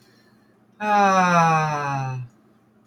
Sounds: Sigh